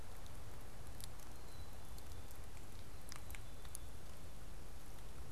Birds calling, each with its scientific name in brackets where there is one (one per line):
Black-capped Chickadee (Poecile atricapillus)